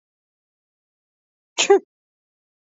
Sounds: Sneeze